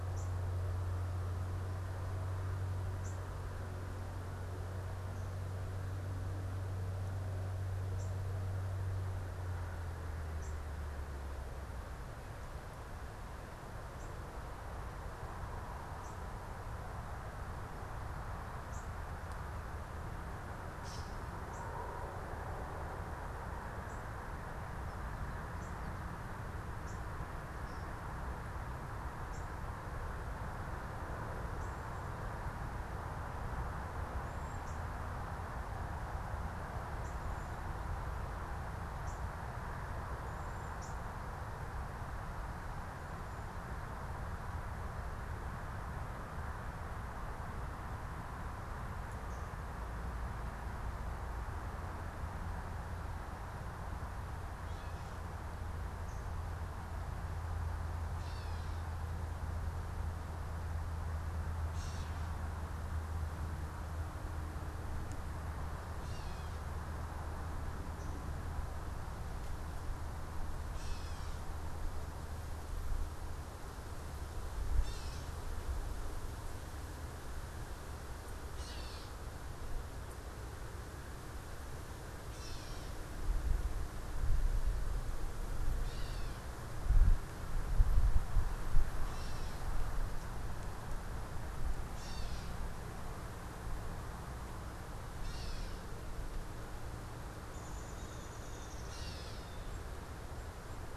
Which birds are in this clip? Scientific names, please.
unidentified bird, Dumetella carolinensis, Dryobates pubescens, Cyanocitta cristata